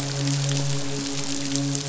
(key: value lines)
label: biophony, midshipman
recorder: SoundTrap 500